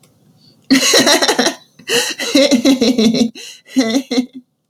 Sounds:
Laughter